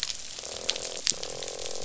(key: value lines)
label: biophony, croak
recorder: SoundTrap 500